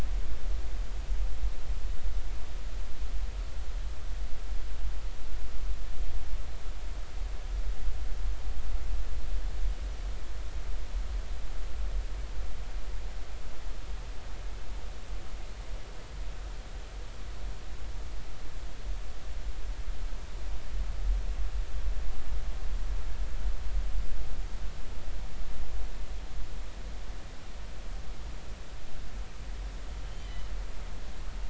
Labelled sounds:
30.0	30.5	killer whale, northern resident, G clan, 2.8 to 3.2 kHz

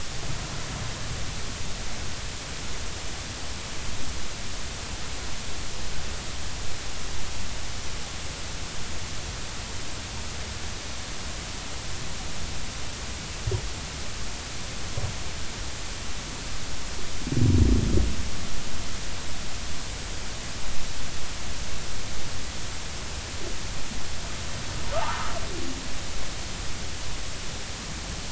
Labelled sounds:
24.9	25.3	humpback whale, 0.80 to 1.4 kHz

